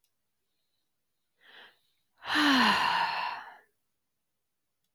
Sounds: Sigh